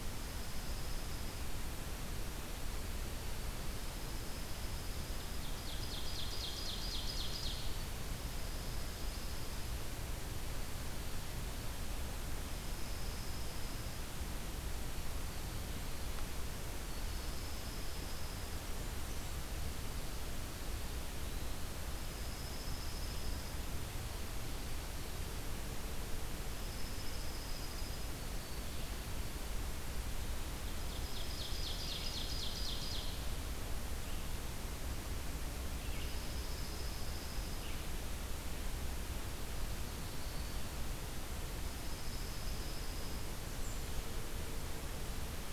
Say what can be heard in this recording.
Dark-eyed Junco, Ovenbird, Red-eyed Vireo